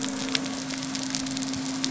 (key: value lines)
label: biophony
recorder: SoundTrap 300